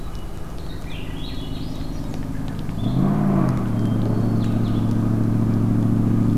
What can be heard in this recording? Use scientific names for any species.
Catharus guttatus, Vireo solitarius, Catharus ustulatus